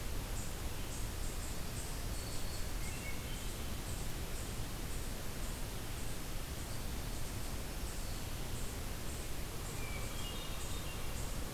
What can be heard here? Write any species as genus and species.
Sphyrapicus varius, Tamias striatus, Setophaga virens, Catharus guttatus